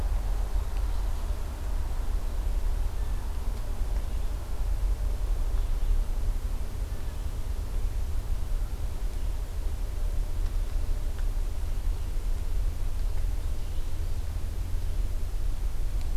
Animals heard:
forest ambience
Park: Acadia National Park